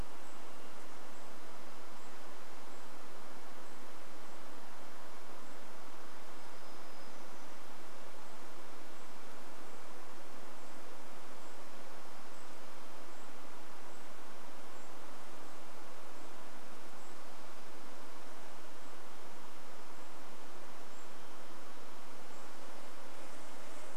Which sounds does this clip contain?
Golden-crowned Kinglet call, warbler song, insect buzz